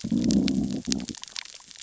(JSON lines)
{"label": "biophony, growl", "recorder": "SoundTrap 600 or HydroMoth"}